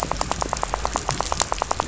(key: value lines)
label: biophony, rattle
recorder: SoundTrap 500